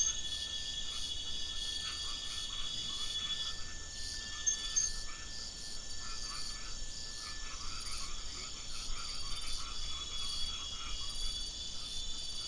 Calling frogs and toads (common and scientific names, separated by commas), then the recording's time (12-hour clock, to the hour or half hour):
white-edged tree frog (Boana albomarginata)
~7pm